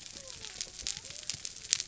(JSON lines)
{"label": "biophony", "recorder": "SoundTrap 300"}